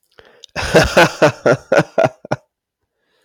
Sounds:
Laughter